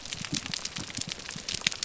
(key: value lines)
label: biophony
recorder: SoundTrap 300